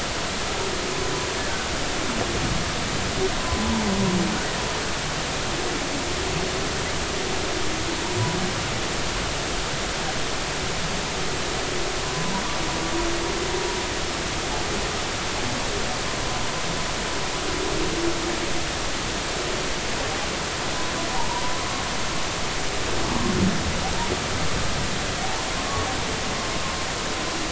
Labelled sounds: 21.6	21.8	humpback whale, 1.0 to 1.2 kHz
25.5	25.9	humpback whale, 1.0 to 1.2 kHz

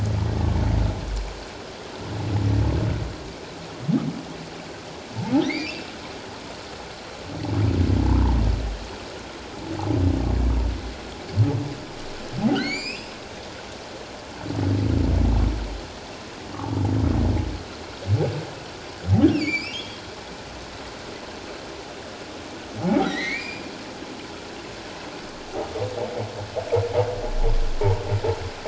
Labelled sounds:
0.2	0.5	humpback whale, 1.7 to 1.9 kHz
5.4	5.8	humpback whale, 1.8 to 4.9 kHz
8.1	8.4	humpback whale, 0.81 to 1.1 kHz
12.6	13.1	humpback whale, 1.8 to 7.3 kHz
19.3	20.0	humpback whale, 2.1 to 7.3 kHz
23.0	23.7	humpback whale, 1.8 to 5.0 kHz

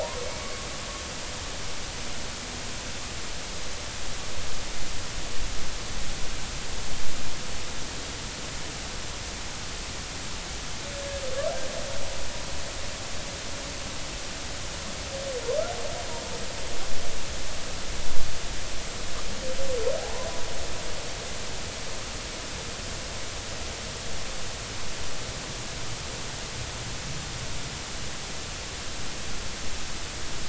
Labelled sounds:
0.0	0.7	humpback whale, 0.80 to 2.3 kHz
20.0	20.3	humpback whale, 0.80 to 1.1 kHz

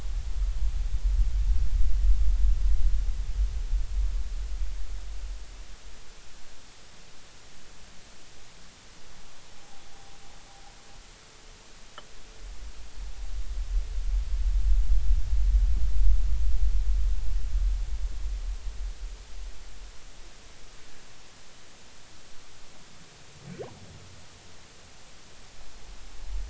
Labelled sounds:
9.6	9.8	humpback whale, 0.80 to 0.86 kHz

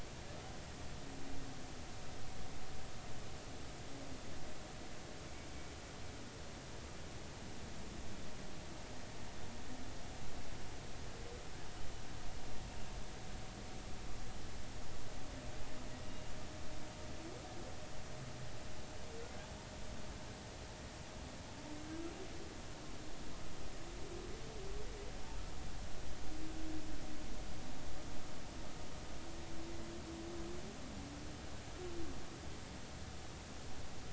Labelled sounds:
16.0	16.3	humpback whale, 2.8 to 2.9 kHz

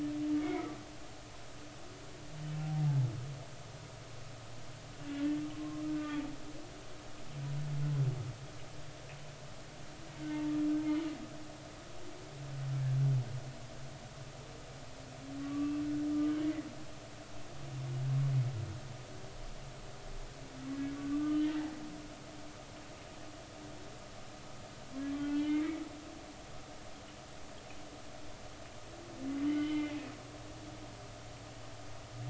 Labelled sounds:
0.4	0.7	humpback whale, 1.9 to 2.3 kHz
2.6	2.8	humpback whale, 0.80 to 0.83 kHz
5.9	6.2	humpback whale, 1.4 to 2.5 kHz
10.1	11.1	humpback whale, 2.0 to 3.1 kHz
15.4	15.8	humpback whale, 1.1 to 1.2 kHz
21.0	21.4	humpback whale, 1.1 to 1.3 kHz
25.1	25.6	humpback whale, 1.9 to 3.1 kHz
29.5	29.9	humpback whale, 2.0 to 3.1 kHz

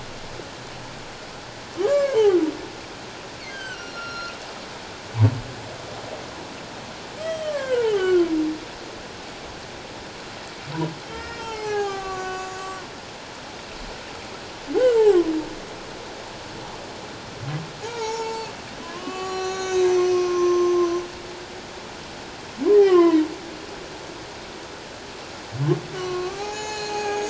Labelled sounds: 1.8	2.4	humpback whale, 0.78 to 2.3 kHz
3.5	4.3	humpback whale, 1.3 to 6.4 kHz
7.2	8.3	humpback whale, 1.0 to 5.9 kHz
11.1	12.8	humpback whale, 0.78 to 8.0 kHz
14.8	15.0	humpback whale, 1.3 to 1.6 kHz
17.8	18.5	humpback whale, 0.78 to 6.9 kHz
18.8	21.0	humpback whale, 0.78 to 6.9 kHz
22.8	23.2	humpback whale, 0.94 to 2.2 kHz
25.9	27.2	humpback whale, 0.78 to 8.0 kHz

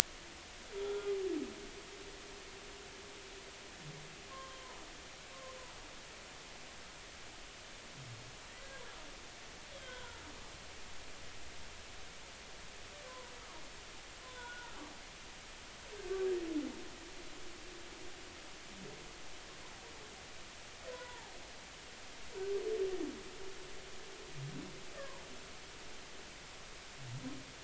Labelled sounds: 0.8	1.1	humpback whale, 1.2 to 1.4 kHz
4.3	4.8	humpback whale, 0.86 to 1.2 kHz
9.8	10.2	humpback whale, 0.90 to 3.5 kHz
13.1	13.3	humpback whale, 0.93 to 1.2 kHz
14.2	14.8	humpback whale, 0.90 to 3.6 kHz
20.9	21.3	humpback whale, 0.80 to 1.1 kHz
25.0	25.3	humpback whale, 0.86 to 1.2 kHz

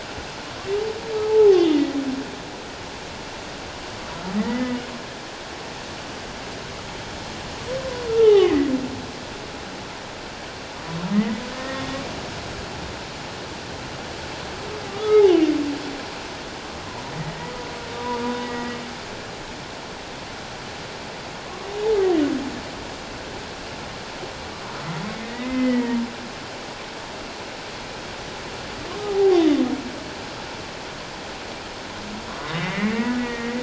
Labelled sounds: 1.3	2.0	humpback whale, 0.78 to 3.4 kHz
4.4	4.8	humpback whale, 1.8 to 2.1 kHz
8.1	8.7	humpback whale, 0.78 to 2.2 kHz
11.1	11.8	humpback whale, 1.8 to 2.2 kHz
14.9	15.3	humpback whale, 1.1 to 1.3 kHz
18.0	18.8	humpback whale, 0.91 to 2.0 kHz
25.2	26.0	humpback whale, 1.8 to 3.1 kHz
29.0	29.4	humpback whale, 0.78 to 0.84 kHz
32.4	33.6	humpback whale, 1.8 to 3.8 kHz

